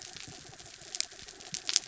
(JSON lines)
{"label": "anthrophony, mechanical", "recorder": "SoundTrap 300"}